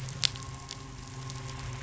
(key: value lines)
label: anthrophony, boat engine
recorder: SoundTrap 500